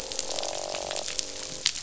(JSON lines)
{"label": "biophony, croak", "recorder": "SoundTrap 500"}